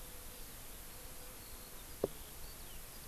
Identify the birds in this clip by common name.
Eurasian Skylark